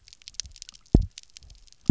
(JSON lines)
{"label": "biophony, double pulse", "recorder": "SoundTrap 300"}